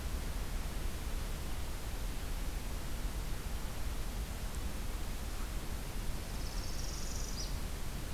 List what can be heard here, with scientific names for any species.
Setophaga americana